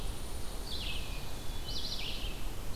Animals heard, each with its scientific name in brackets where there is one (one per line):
Hermit Thrush (Catharus guttatus)
unidentified call
Red-eyed Vireo (Vireo olivaceus)